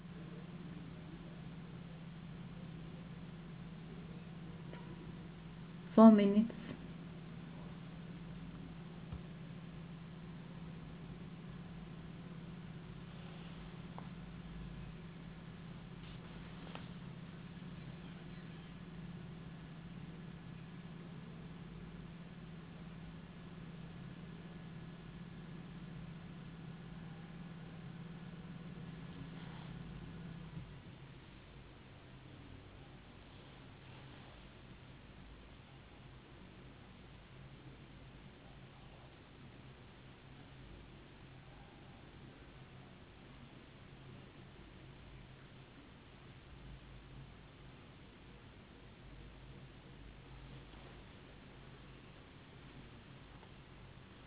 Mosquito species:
no mosquito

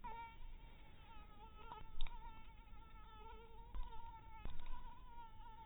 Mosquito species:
mosquito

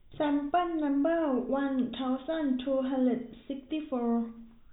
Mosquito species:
no mosquito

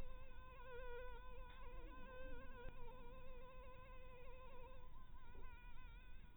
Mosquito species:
mosquito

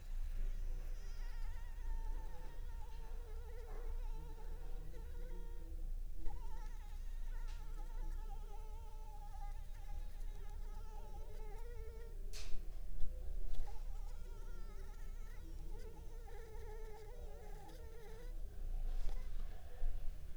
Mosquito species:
Anopheles arabiensis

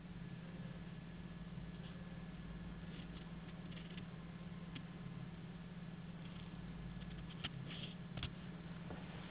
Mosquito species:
Anopheles gambiae s.s.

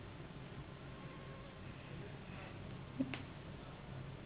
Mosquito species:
Anopheles gambiae s.s.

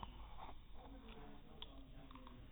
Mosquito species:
no mosquito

